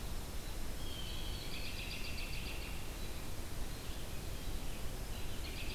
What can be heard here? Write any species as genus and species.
Junco hyemalis, Cyanocitta cristata, Turdus migratorius, Vireo olivaceus